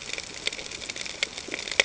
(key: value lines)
label: ambient
recorder: HydroMoth